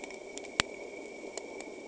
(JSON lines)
{"label": "anthrophony, boat engine", "recorder": "HydroMoth"}